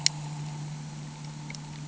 {"label": "anthrophony, boat engine", "recorder": "HydroMoth"}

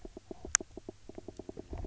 {"label": "biophony, knock croak", "recorder": "SoundTrap 300"}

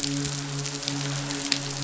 {"label": "biophony, midshipman", "recorder": "SoundTrap 500"}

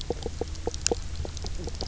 {"label": "biophony, knock croak", "recorder": "SoundTrap 300"}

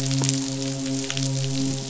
{"label": "biophony, midshipman", "recorder": "SoundTrap 500"}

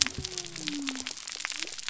{"label": "biophony", "recorder": "SoundTrap 300"}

